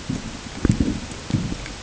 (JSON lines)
{"label": "ambient", "recorder": "HydroMoth"}